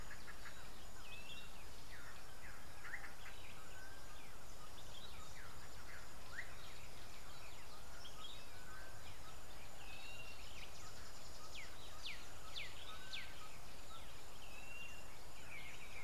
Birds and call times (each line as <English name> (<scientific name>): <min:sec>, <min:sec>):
Blue-naped Mousebird (Urocolius macrourus): 0:10.2
Black-backed Puffback (Dryoscopus cubla): 0:12.6